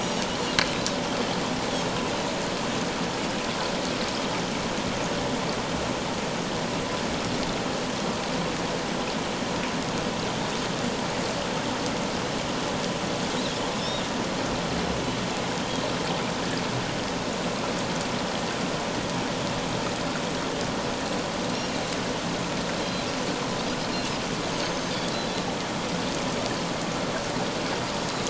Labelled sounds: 0.0	0.3	Pacific white-sided dolphin, 5.5 to 6.8 kHz
13.8	14.0	Pacific white-sided dolphin, 5.2 to 5.7 kHz
23.9	24.9	Pacific white-sided dolphin, 2.6 to 6.5 kHz

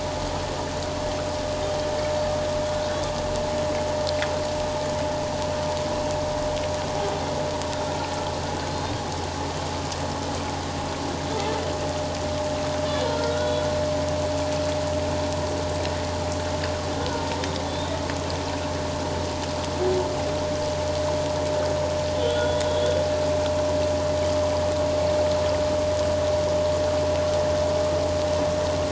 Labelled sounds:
8.7	9.0	humpback whale, 3.6 to 3.8 kHz
13.0	13.6	humpback whale, 1.3 to 4.0 kHz
17.0	18.0	humpback whale, 1.4 to 3.8 kHz
22.2	23.0	humpback whale, 1.4 to 3.6 kHz

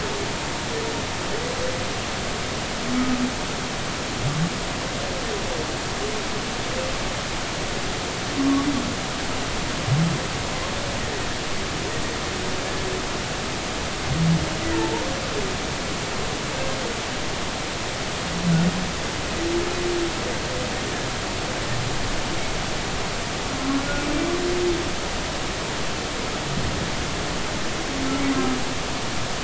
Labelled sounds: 3.0	3.2	humpback whale, 1.2 to 1.3 kHz
14.6	15.0	humpback whale, 0.83 to 2.1 kHz

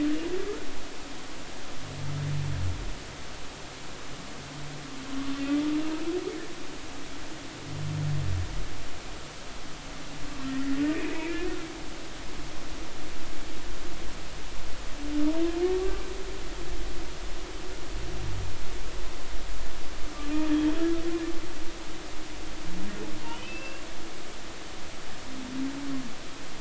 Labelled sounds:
10.9	11.5	humpback whale, 2.2 to 2.7 kHz
15.8	16.0	humpback whale, 1.1 to 1.2 kHz
20.5	20.7	humpback whale, 3.1 to 3.4 kHz
23.2	23.8	humpback whale, 2.4 to 4.8 kHz

